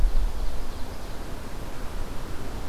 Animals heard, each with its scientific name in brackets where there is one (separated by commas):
Ovenbird (Seiurus aurocapilla)